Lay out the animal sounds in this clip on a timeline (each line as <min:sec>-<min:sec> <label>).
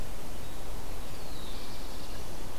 0:01.0-0:02.4 Black-throated Blue Warbler (Setophaga caerulescens)